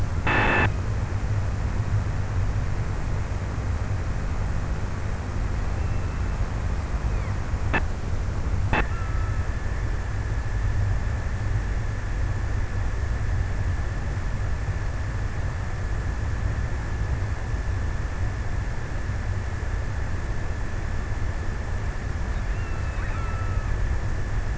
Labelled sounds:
8.3	10.0	killer whale, offshore, 0.94 to 2.9 kHz
22.0	24.5	killer whale, offshore, 0.93 to 3.0 kHz

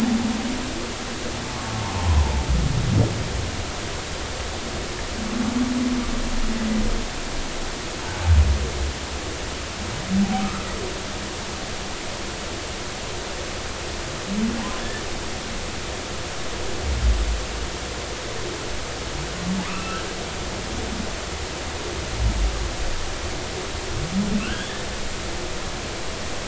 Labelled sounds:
2.0	2.2	humpback whale, 0.80 to 1.1 kHz
10.4	10.7	humpback whale, 1.2 to 1.4 kHz
19.6	20.0	humpback whale, 0.80 to 2.9 kHz
24.4	24.7	humpback whale, 1.1 to 1.7 kHz

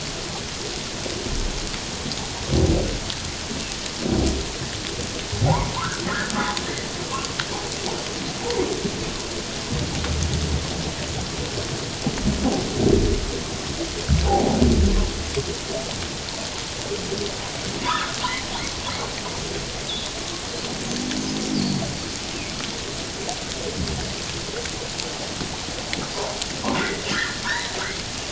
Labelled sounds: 5.5	6.3	humpback whale, 0.78 to 2.0 kHz
14.3	14.6	humpback whale, 0.78 to 1.0 kHz
17.8	18.2	humpback whale, 0.91 to 1.5 kHz
19.9	20.1	humpback whale, 3.3 to 3.9 kHz
21.5	21.8	humpback whale, 4.3 to 5.1 kHz
26.8	27.8	humpback whale, 0.88 to 4.1 kHz

